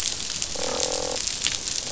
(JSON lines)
{"label": "biophony, croak", "recorder": "SoundTrap 500"}